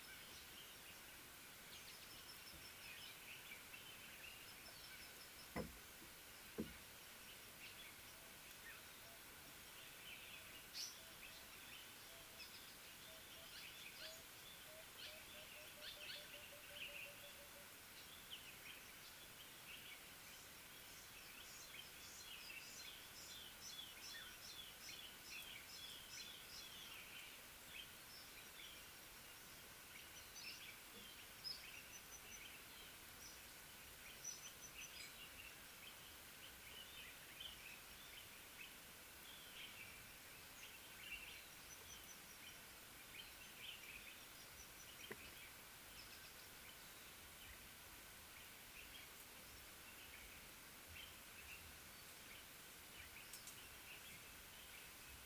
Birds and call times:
African Paradise-Flycatcher (Terpsiphone viridis): 10.8s
Emerald-spotted Wood-Dove (Turtur chalcospilos): 14.0s
Common Bulbul (Pycnonotus barbatus): 15.9s
Collared Sunbird (Hedydipna collaris): 24.5s
Little Bee-eater (Merops pusillus): 31.5s

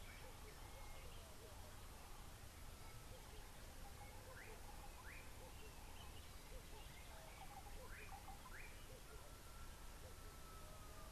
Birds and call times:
Slate-colored Boubou (Laniarius funebris): 5.1s

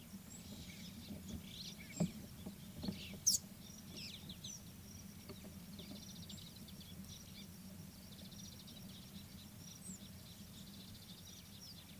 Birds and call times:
Superb Starling (Lamprotornis superbus): 1.5s
Mariqua Sunbird (Cinnyris mariquensis): 6.1s

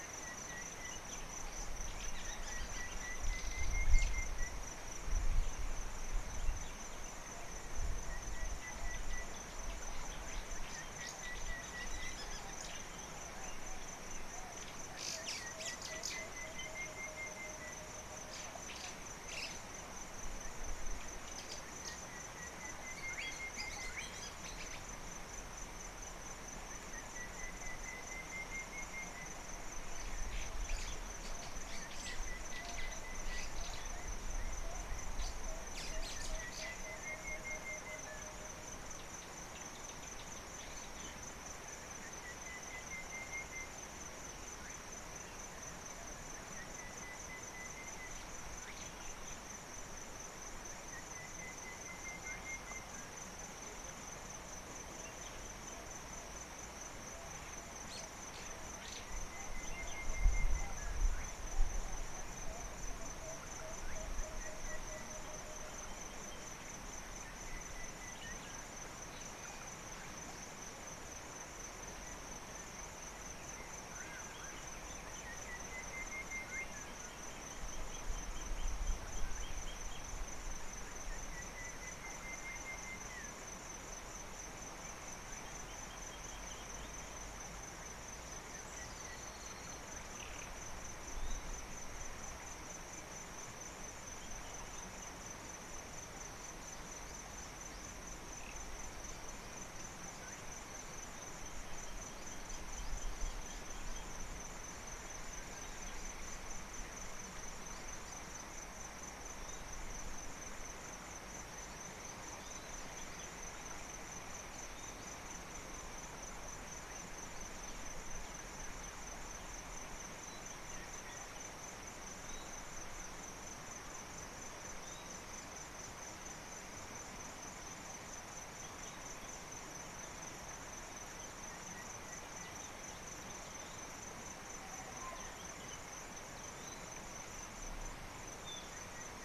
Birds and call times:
White-browed Sparrow-Weaver (Plocepasser mahali): 15.1s, 35.3s
Emerald-spotted Wood-Dove (Turtur chalcospilos): 63.7s

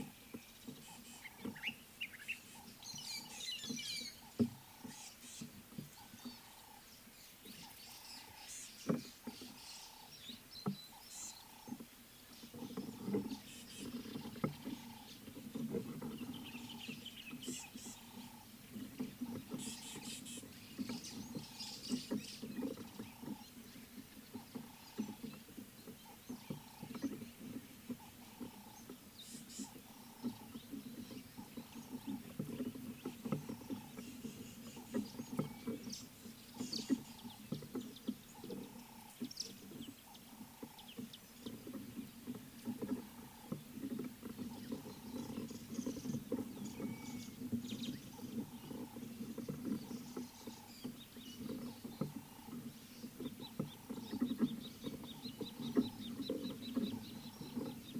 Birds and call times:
Common Bulbul (Pycnonotus barbatus): 2.0s
White-headed Buffalo-Weaver (Dinemellia dinemelli): 3.4s
Ring-necked Dove (Streptopelia capicola): 6.5s, 11.5s, 31.9s, 40.5s
Rattling Cisticola (Cisticola chiniana): 17.5s, 20.0s, 29.5s
Rüppell's Starling (Lamprotornis purpuroptera): 35.9s
Scarlet-chested Sunbird (Chalcomitra senegalensis): 54.3s, 56.5s

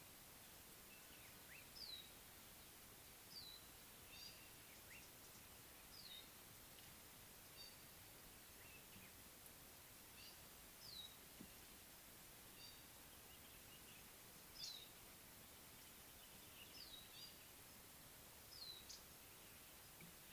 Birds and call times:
Slate-colored Boubou (Laniarius funebris): 1.6s
Gray-backed Camaroptera (Camaroptera brevicaudata): 4.3s
Red-faced Crombec (Sylvietta whytii): 14.7s, 19.0s

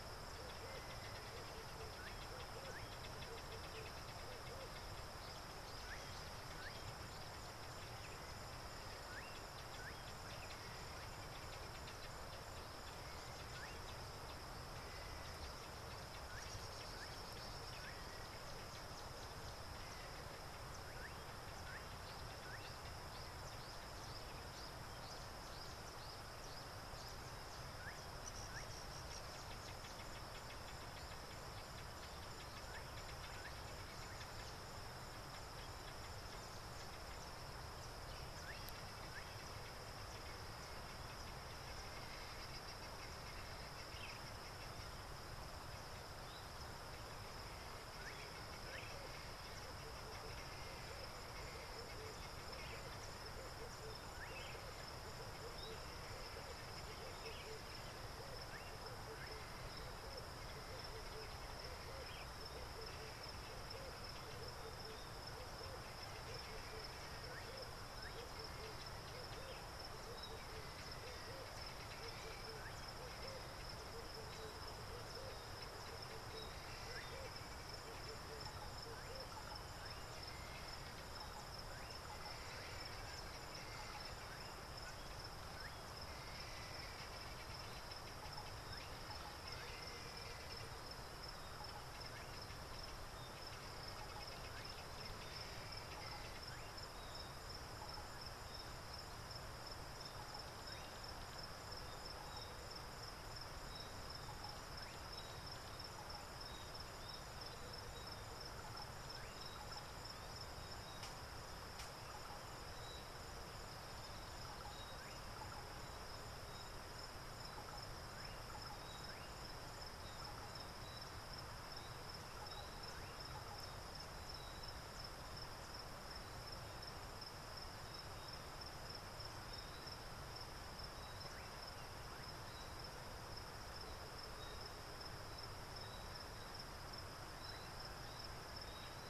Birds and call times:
Tawny-flanked Prinia (Prinia subflava): 24.6s, 26.0s
Cardinal Woodpecker (Chloropicus fuscescens): 28.6s
Red-eyed Dove (Streptopelia semitorquata): 65.4s
Helmeted Guineafowl (Numida meleagris): 86.5s, 89.9s, 96.1s

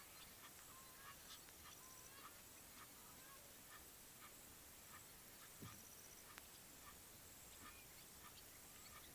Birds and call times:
Gray Crowned-Crane (Balearica regulorum): 2.1s
Quailfinch (Ortygospiza atricollis): 8.0s

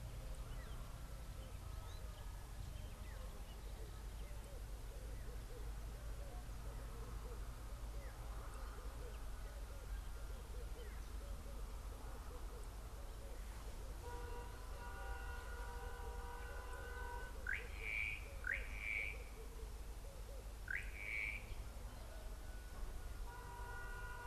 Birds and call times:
Slate-colored Boubou (Laniarius funebris): 17.5s, 20.7s
Red-eyed Dove (Streptopelia semitorquata): 19.2s

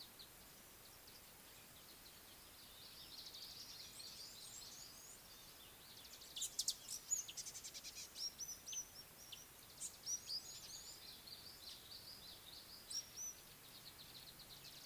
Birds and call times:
African Gray Flycatcher (Bradornis microrhynchus): 8.6s, 13.2s
Red-faced Crombec (Sylvietta whytii): 12.1s

